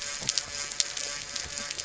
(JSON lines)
{"label": "anthrophony, boat engine", "recorder": "SoundTrap 300"}